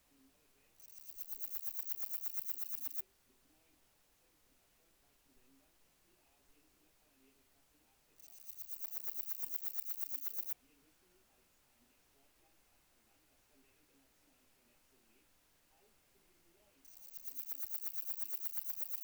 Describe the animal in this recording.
Parnassiana chelmos, an orthopteran